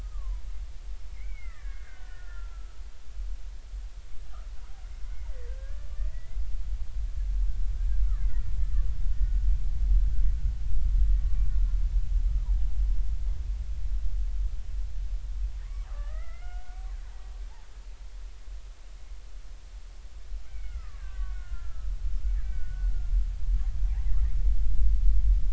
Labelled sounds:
0.0	2.8	killer whale, Bigg's (transient), 0.93 to 5.3 kHz
5.0	6.4	killer whale, Bigg's (transient), 1.5 to 2.2 kHz
8.2	8.5	killer whale, Bigg's (transient), 1.7 to 2.1 kHz
11.2	11.8	killer whale, Bigg's (transient), 1.1 to 1.5 kHz
15.8	16.8	killer whale, Bigg's (transient), 1.1 to 3.0 kHz
20.5	21.9	killer whale, Bigg's (transient), 0.99 to 2.4 kHz
22.4	22.9	killer whale, Bigg's (transient), 1.4 to 2.4 kHz

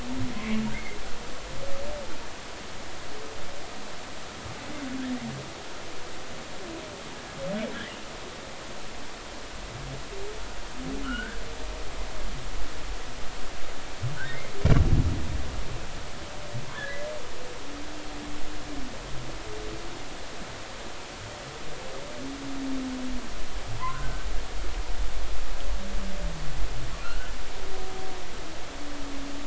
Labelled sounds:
0.3	1.0	humpback whale, 0.99 to 2.2 kHz
11.0	11.4	humpback whale, 1.2 to 1.8 kHz
16.7	17.1	humpback whale, 1.4 to 1.9 kHz
23.8	24.3	humpback whale, 0.86 to 1.6 kHz
27.0	27.3	humpback whale, 1.2 to 1.6 kHz

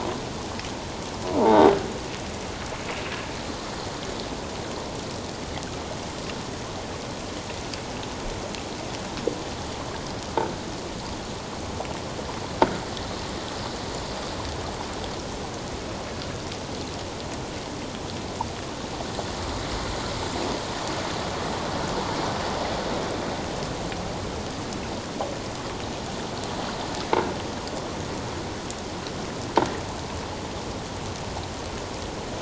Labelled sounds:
1.4	1.7	croaking sound likely from a nearby submerged object, 0.78 to 1.6 kHz

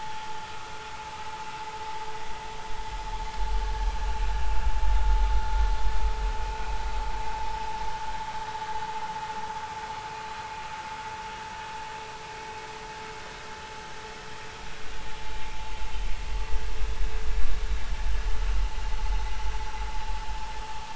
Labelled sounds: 0.4	0.7	vessel noise, 1.1 to 1.4 kHz

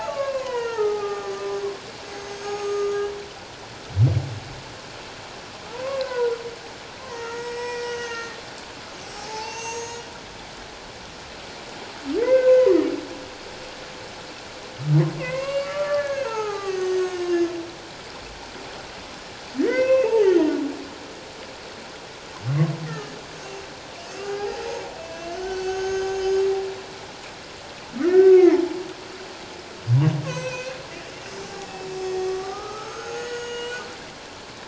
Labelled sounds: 0.0	3.1	humpback whale, 0.78 to 7.9 kHz
5.7	6.4	humpback whale, 0.84 to 1.7 kHz
7.0	8.4	humpback whale, 0.88 to 8.0 kHz
9.0	10.0	humpback whale, 0.78 to 6.7 kHz
12.2	12.9	humpback whale, 1.4 to 2.2 kHz
15.2	17.5	humpback whale, 0.78 to 8.0 kHz
19.6	20.5	humpback whale, 0.81 to 5.8 kHz
22.9	23.1	humpback whale, 1.2 to 1.4 kHz
24.2	24.6	humpback whale, 0.78 to 5.0 kHz
25.1	26.5	humpback whale, 1.4 to 6.7 kHz
28.0	28.6	humpback whale, 0.84 to 2.2 kHz
30.3	30.8	humpback whale, 1.4 to 6.4 kHz
31.4	33.8	humpback whale, 0.78 to 7.6 kHz

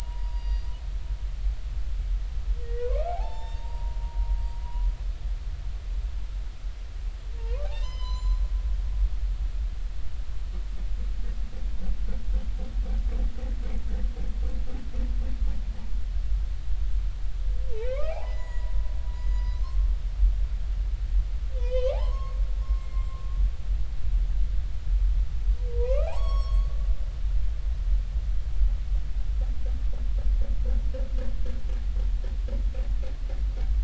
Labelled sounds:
0.2	0.7	humpback whale, 2.8 to 5.7 kHz
2.6	4.3	humpback whale, 0.80 to 7.3 kHz
4.6	4.9	humpback whale, 0.93 to 1.1 kHz
7.4	8.4	humpback whale, 0.86 to 8.0 kHz
9.0	9.3	humpback whale, 7.0 to 7.2 kHz
17.8	18.7	humpback whale, 0.80 to 8.0 kHz
19.2	19.9	humpback whale, 0.99 to 8.0 kHz
21.6	22.4	humpback whale, 0.80 to 4.4 kHz
22.8	23.2	humpback whale, 2.1 to 7.5 kHz
25.7	26.8	humpback whale, 0.80 to 8.0 kHz

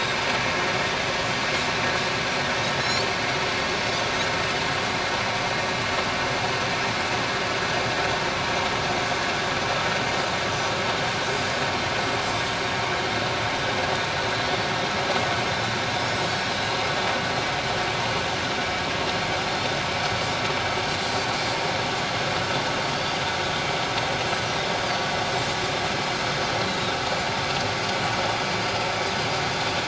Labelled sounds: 2.8	3.1	Pacific white-sided dolphin, 4.0 to 7.1 kHz
21.0	21.6	Pacific white-sided dolphin, 4.5 to 7.8 kHz
22.9	23.2	Pacific white-sided dolphin, 4.5 to 4.8 kHz
24.8	25.1	Pacific white-sided dolphin, 4.5 to 4.9 kHz
26.6	27.0	Pacific white-sided dolphin, 3.6 to 4.2 kHz

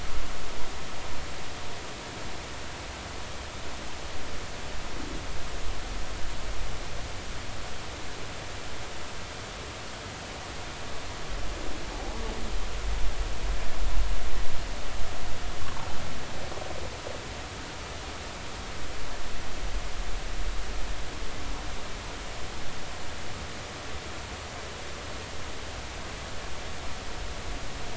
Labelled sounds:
11.8	12.2	humpback whale, 0.80 to 0.99 kHz

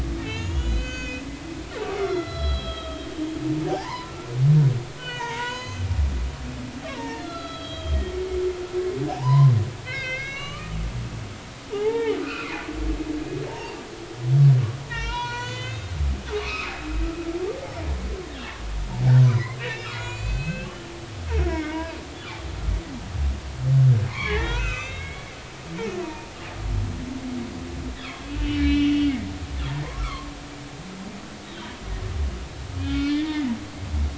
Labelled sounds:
0.2	1.2	humpback whale, 1.4 to 7.2 kHz
2.0	3.1	humpback whale, 1.2 to 5.4 kHz
3.7	4.3	humpback whale, 0.80 to 5.1 kHz
5.0	5.8	humpback whale, 0.86 to 6.7 kHz
7.0	8.1	humpback whale, 0.86 to 4.3 kHz
9.1	9.5	humpback whale, 0.80 to 1.1 kHz
9.8	10.8	humpback whale, 1.1 to 6.5 kHz
11.7	12.6	humpback whale, 0.80 to 2.8 kHz
13.5	13.8	humpback whale, 0.80 to 2.9 kHz
14.9	16.9	humpback whale, 0.86 to 7.2 kHz
19.3	20.8	humpback whale, 1.1 to 7.5 kHz
21.4	22.0	humpback whale, 0.90 to 2.3 kHz
24.1	26.3	humpback whale, 0.86 to 6.4 kHz
28.0	29.3	humpback whale, 1.4 to 3.8 kHz
30.0	30.3	humpback whale, 0.99 to 1.4 kHz
32.8	33.5	humpback whale, 1.3 to 3.6 kHz

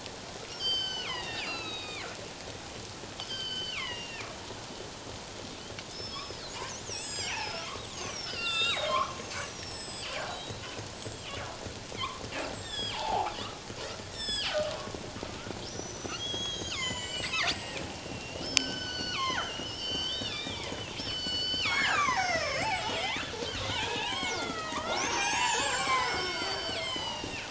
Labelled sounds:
0.5	2.1	killer whale, northern resident, G clan, 1.2 to 7.8 kHz
3.2	4.4	killer whale, northern resident, G clan, 0.88 to 5.7 kHz
5.9	10.6	killer whale, northern resident, G clan, 0.97 to 8.0 kHz
10.8	11.4	killer whale, northern resident, G clan, call N25, 2.7 to 8.0 kHz
12.5	13.3	killer whale, northern resident, G clan, call N25, 0.78 to 7.9 kHz
13.9	15.0	killer whale, northern resident, G clan, call N25, 0.97 to 8.0 kHz
15.7	23.3	killer whale, northern resident, G clan, 0.78 to 8.0 kHz
23.7	27.4	killer whale, northern resident, G clan, 0.78 to 8.0 kHz

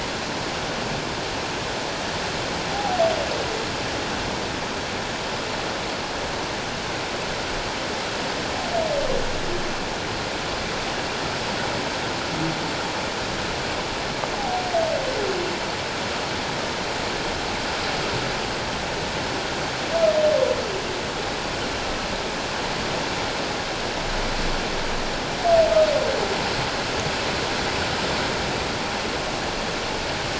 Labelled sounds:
2.7	3.0	humpback whale, 0.78 to 0.88 kHz

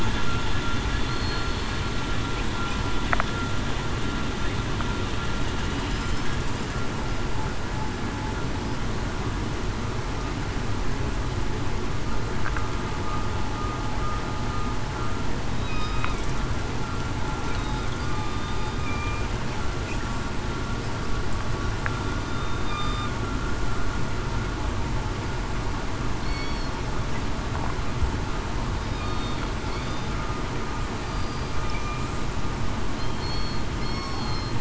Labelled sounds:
1.0	1.6	killer whale, southern resident, 4.2 to 4.4 kHz
5.9	6.2	killer whale, southern resident, 5.0 to 5.3 kHz
15.5	16.1	killer whale, southern resident, 1.2 to 3.9 kHz
18.0	18.4	killer whale, southern resident, 1.17 to 1.22 kHz
18.8	19.2	killer whale, southern resident, 2.3 to 2.5 kHz
22.3	23.1	killer whale, southern resident, 3.6 to 3.7 kHz
26.3	26.7	killer whale, southern resident, 4.2 to 4.5 kHz
29.0	29.4	killer whale, southern resident, 3.6 to 4.4 kHz
31.0	32.0	killer whale, southern resident, 2.3 to 4.8 kHz
33.1	34.1	killer whale, southern resident, 2.1 to 4.4 kHz

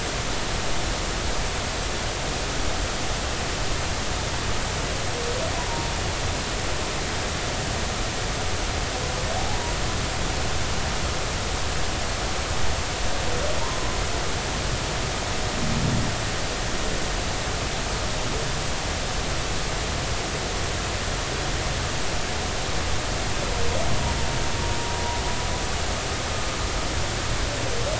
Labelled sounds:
5.7	5.9	humpback whale, 0.90 to 1.0 kHz

